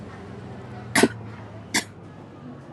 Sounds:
Cough